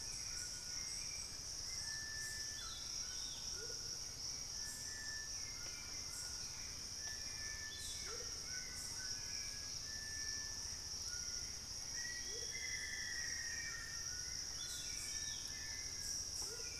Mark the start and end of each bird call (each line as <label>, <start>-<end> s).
Hauxwell's Thrush (Turdus hauxwelli), 0.0-16.8 s
White-throated Toucan (Ramphastos tucanus), 0.0-16.8 s
Amazonian Motmot (Momotus momota), 3.4-3.9 s
Amazonian Motmot (Momotus momota), 8.0-8.4 s
Black-faced Antthrush (Formicarius analis), 11.9-14.0 s
Amazonian Motmot (Momotus momota), 12.2-12.6 s
Amazonian Motmot (Momotus momota), 16.4-16.8 s